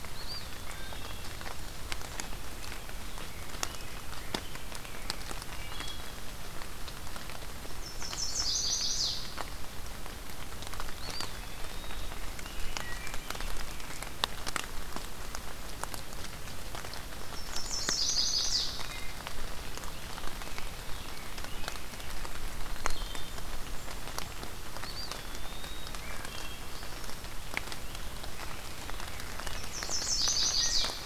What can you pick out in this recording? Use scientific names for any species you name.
Contopus virens, Hylocichla mustelina, Pheucticus ludovicianus, Setophaga pensylvanica, Setophaga fusca